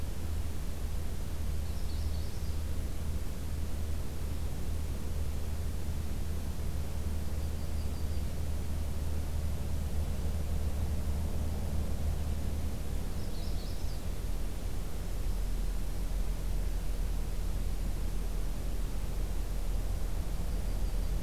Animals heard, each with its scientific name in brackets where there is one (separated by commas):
Yellow-rumped Warbler (Setophaga coronata), Magnolia Warbler (Setophaga magnolia)